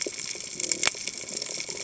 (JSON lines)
{"label": "biophony", "recorder": "HydroMoth"}